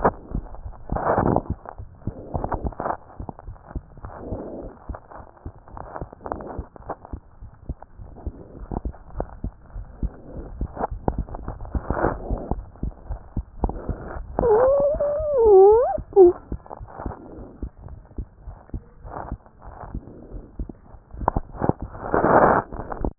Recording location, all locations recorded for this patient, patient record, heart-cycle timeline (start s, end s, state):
pulmonary valve (PV)
pulmonary valve (PV)+tricuspid valve (TV)+mitral valve (MV)
#Age: Child
#Sex: Male
#Height: 89.0 cm
#Weight: 13.4 kg
#Pregnancy status: False
#Murmur: Unknown
#Murmur locations: nan
#Most audible location: nan
#Systolic murmur timing: nan
#Systolic murmur shape: nan
#Systolic murmur grading: nan
#Systolic murmur pitch: nan
#Systolic murmur quality: nan
#Diastolic murmur timing: nan
#Diastolic murmur shape: nan
#Diastolic murmur grading: nan
#Diastolic murmur pitch: nan
#Diastolic murmur quality: nan
#Outcome: Normal
#Campaign: 2015 screening campaign
0.00	7.40	unannotated
7.40	7.52	S1
7.52	7.67	systole
7.67	7.74	S2
7.74	7.97	diastole
7.97	8.08	S1
8.08	8.24	systole
8.24	8.33	S2
8.33	8.58	diastole
8.58	8.67	S1
8.67	8.84	systole
8.84	8.93	S2
8.93	9.15	diastole
9.15	9.26	S1
9.26	9.42	systole
9.42	9.51	S2
9.51	9.74	diastole
9.74	9.85	S1
9.85	10.01	systole
10.01	10.10	S2
10.10	10.35	diastole
10.35	10.44	S1
10.44	10.60	systole
10.60	10.68	S2
10.68	10.89	diastole
10.89	11.00	S1
11.00	11.16	systole
11.16	11.24	S2
11.24	11.47	diastole
11.47	13.07	unannotated
13.07	13.18	S1
13.18	13.35	systole
13.35	13.43	S2
13.43	13.63	diastole
13.63	17.35	unannotated
17.35	17.46	S1
17.46	17.60	systole
17.60	17.70	S2
17.70	17.90	diastole
17.90	18.03	S1
18.03	18.16	systole
18.16	18.26	S2
18.26	18.45	diastole
18.45	18.57	S1
18.57	18.72	systole
18.72	18.81	S2
18.81	19.03	diastole
19.03	19.13	S1
19.13	19.29	systole
19.29	19.39	S2
19.39	19.64	diastole
19.64	19.73	S1
19.73	19.91	systole
19.91	20.02	S2
20.02	20.31	diastole
20.31	20.42	S1
20.42	20.57	systole
20.57	20.67	S2
20.67	20.92	diastole
20.92	23.18	unannotated